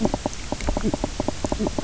{"label": "biophony, knock croak", "recorder": "SoundTrap 300"}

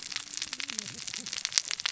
{"label": "biophony, cascading saw", "recorder": "SoundTrap 600 or HydroMoth"}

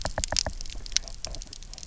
{"label": "biophony, knock", "recorder": "SoundTrap 300"}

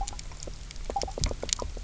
{"label": "biophony, knock croak", "recorder": "SoundTrap 300"}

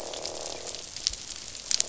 {"label": "biophony, croak", "recorder": "SoundTrap 500"}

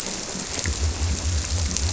{"label": "biophony", "recorder": "SoundTrap 300"}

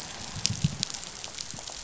{"label": "biophony, growl", "recorder": "SoundTrap 500"}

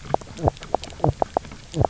{"label": "biophony, knock croak", "recorder": "SoundTrap 300"}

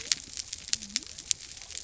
{"label": "biophony", "recorder": "SoundTrap 300"}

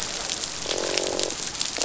{"label": "biophony, croak", "recorder": "SoundTrap 500"}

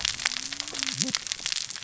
{"label": "biophony, cascading saw", "recorder": "SoundTrap 600 or HydroMoth"}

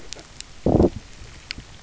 {"label": "biophony, low growl", "recorder": "SoundTrap 300"}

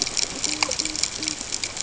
{"label": "ambient", "recorder": "HydroMoth"}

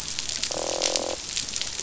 {"label": "biophony, croak", "recorder": "SoundTrap 500"}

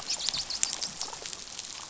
{"label": "biophony", "recorder": "SoundTrap 500"}
{"label": "biophony, dolphin", "recorder": "SoundTrap 500"}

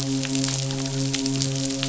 {"label": "biophony, midshipman", "recorder": "SoundTrap 500"}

